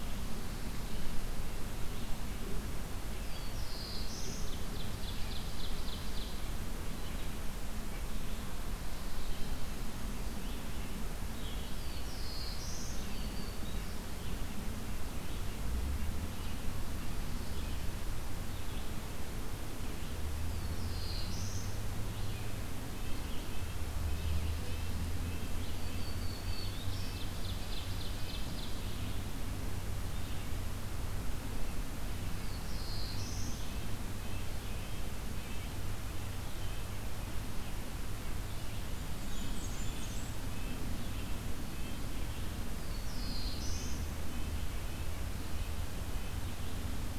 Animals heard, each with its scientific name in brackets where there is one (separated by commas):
Black-throated Blue Warbler (Setophaga caerulescens), Red-eyed Vireo (Vireo olivaceus), Ovenbird (Seiurus aurocapilla), Black-throated Green Warbler (Setophaga virens), Red-breasted Nuthatch (Sitta canadensis), Brown Creeper (Certhia americana)